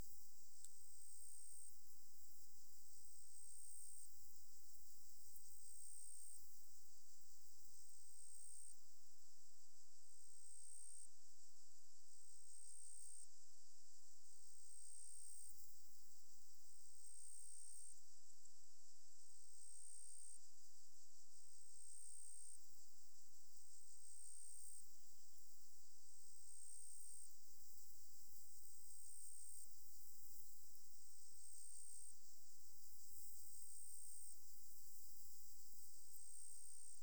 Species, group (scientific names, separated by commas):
Pteronemobius heydenii, Orthoptera